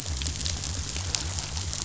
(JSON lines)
{"label": "biophony", "recorder": "SoundTrap 500"}